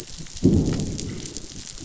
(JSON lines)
{"label": "biophony, growl", "recorder": "SoundTrap 500"}